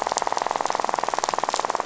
{"label": "biophony, rattle", "recorder": "SoundTrap 500"}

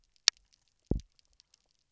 {"label": "biophony, double pulse", "recorder": "SoundTrap 300"}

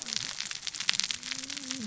{"label": "biophony, cascading saw", "recorder": "SoundTrap 600 or HydroMoth"}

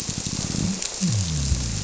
{"label": "biophony", "recorder": "SoundTrap 300"}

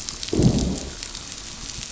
{"label": "biophony, growl", "recorder": "SoundTrap 500"}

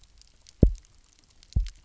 {"label": "biophony, double pulse", "recorder": "SoundTrap 300"}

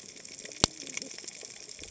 {"label": "biophony, cascading saw", "recorder": "HydroMoth"}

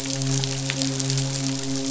{"label": "biophony, midshipman", "recorder": "SoundTrap 500"}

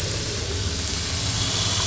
{"label": "anthrophony, boat engine", "recorder": "SoundTrap 500"}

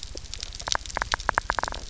{"label": "biophony, knock", "recorder": "SoundTrap 300"}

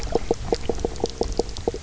{"label": "biophony, knock croak", "recorder": "SoundTrap 300"}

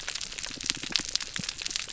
{"label": "biophony", "recorder": "SoundTrap 300"}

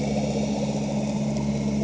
{"label": "anthrophony, boat engine", "recorder": "HydroMoth"}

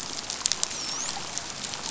{"label": "biophony, dolphin", "recorder": "SoundTrap 500"}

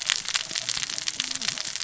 {"label": "biophony, cascading saw", "recorder": "SoundTrap 600 or HydroMoth"}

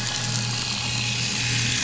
{"label": "anthrophony, boat engine", "recorder": "SoundTrap 500"}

